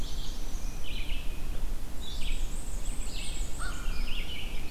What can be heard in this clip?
Black-and-white Warbler, Red-eyed Vireo, Tufted Titmouse, American Crow